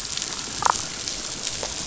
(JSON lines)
{"label": "biophony, damselfish", "recorder": "SoundTrap 500"}